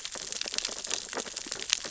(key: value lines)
label: biophony, sea urchins (Echinidae)
recorder: SoundTrap 600 or HydroMoth